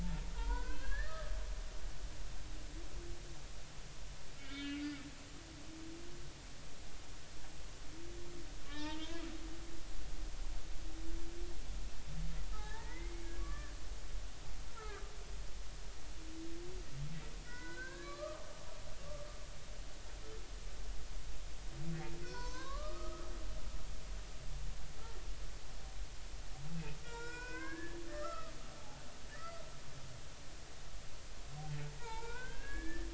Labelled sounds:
0.0	1.3	humpback whale, 0.83 to 3.5 kHz
4.4	4.9	humpback whale, 1.3 to 4.3 kHz
8.7	9.2	humpback whale, 0.83 to 3.8 kHz
12.5	13.7	humpback whale, 0.80 to 2.2 kHz
14.7	15.0	humpback whale, 1.2 to 1.4 kHz
17.5	18.4	humpback whale, 0.93 to 4.1 kHz
22.2	23.3	humpback whale, 0.90 to 5.6 kHz
27.0	29.0	humpback whale, 0.80 to 7.4 kHz
29.3	29.6	humpback whale, 1.2 to 2.1 kHz
32.0	33.1	humpback whale, 0.83 to 2.6 kHz

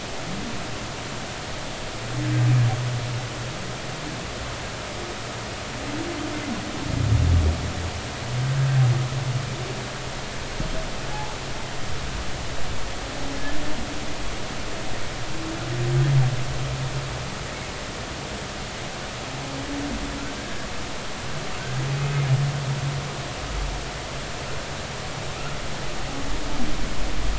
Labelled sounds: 11.1	11.3	humpback whale, 0.80 to 1.0 kHz

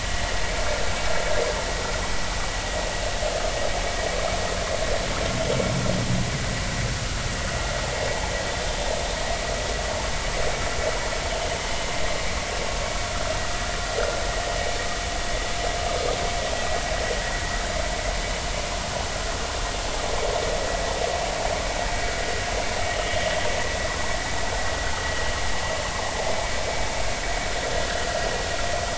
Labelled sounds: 27.9	28.2	vessel noise, 1.3 to 1.8 kHz

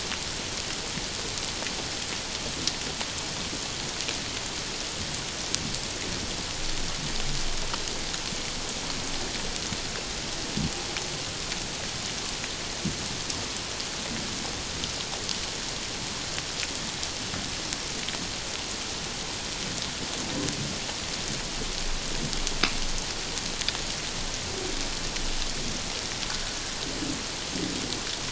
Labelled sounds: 26.3	26.6	water noise, 1.4 to 1.7 kHz

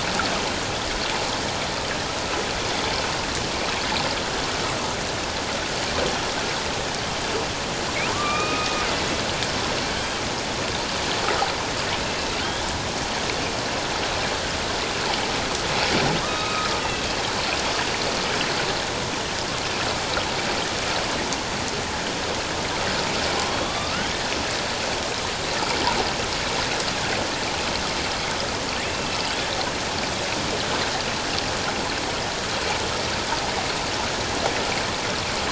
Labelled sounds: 8.1	8.8	killer whale, northern resident, A clan, AB subclan, H01 pod, 0.97 to 2.5 kHz
9.9	10.2	killer whale, northern resident, A clan, AB subclan, H01 pod, 3.0 to 3.2 kHz
12.4	12.6	killer whale, northern resident, A clan, AB subclan, H01 pod, 1.4 to 1.8 kHz
16.2	17.2	killer whale, northern resident, A clan, AB subclan, H01 pod, 1.0 to 3.9 kHz
23.5	24.1	killer whale, northern resident, A clan, AB subclan, H01 pod, 1.1 to 3.8 kHz
28.8	29.2	killer whale, northern resident, A clan, AB subclan, H01 pod, 2.5 to 2.7 kHz

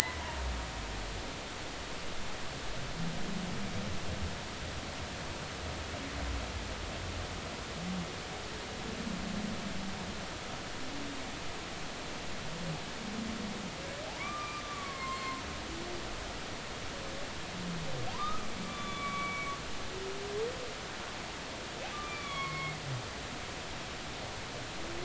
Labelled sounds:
14.2	15.5	humpback whale, 0.93 to 2.3 kHz
18.1	19.5	humpback whale, 0.93 to 3.6 kHz
21.9	22.7	humpback whale, 1.0 to 3.5 kHz

